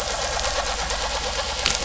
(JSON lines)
{"label": "anthrophony, boat engine", "recorder": "SoundTrap 500"}